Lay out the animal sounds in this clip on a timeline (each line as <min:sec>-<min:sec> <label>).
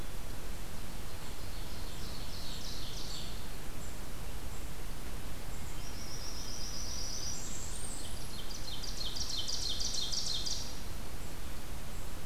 0:01.6-0:03.6 Ovenbird (Seiurus aurocapilla)
0:05.7-0:08.4 Blackburnian Warbler (Setophaga fusca)
0:07.6-0:10.8 Ovenbird (Seiurus aurocapilla)